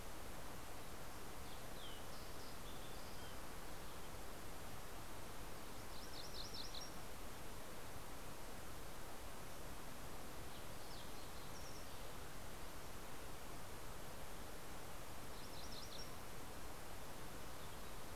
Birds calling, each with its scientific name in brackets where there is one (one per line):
Fox Sparrow (Passerella iliaca)
MacGillivray's Warbler (Geothlypis tolmiei)